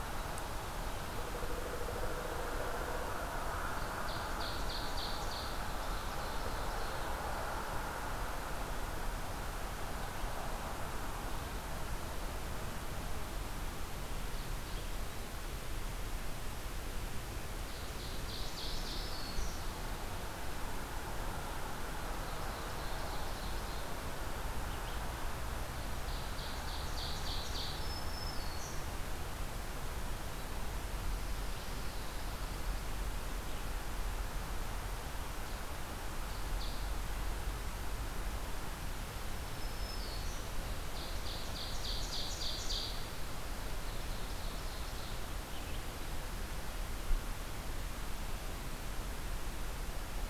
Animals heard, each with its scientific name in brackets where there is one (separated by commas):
Ovenbird (Seiurus aurocapilla), Black-throated Green Warbler (Setophaga virens)